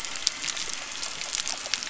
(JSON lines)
{"label": "anthrophony, boat engine", "recorder": "SoundTrap 300"}